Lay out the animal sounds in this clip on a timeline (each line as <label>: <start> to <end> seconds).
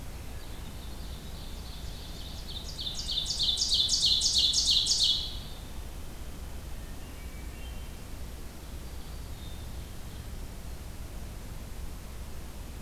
Hermit Thrush (Catharus guttatus): 0.2 to 0.8 seconds
Ovenbird (Seiurus aurocapilla): 0.4 to 5.5 seconds
Hermit Thrush (Catharus guttatus): 6.8 to 8.1 seconds
Ovenbird (Seiurus aurocapilla): 8.5 to 10.2 seconds
Black-capped Chickadee (Poecile atricapillus): 9.3 to 10.2 seconds